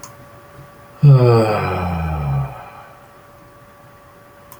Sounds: Sigh